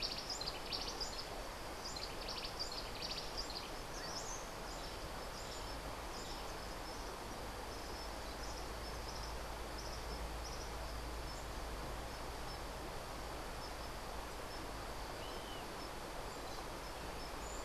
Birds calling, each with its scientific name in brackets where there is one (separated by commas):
Yellow-bellied Elaenia (Elaenia flavogaster), Cabanis's Wren (Cantorchilus modestus)